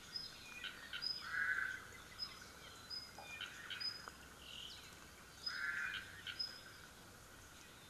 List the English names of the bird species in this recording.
Apapane, Omao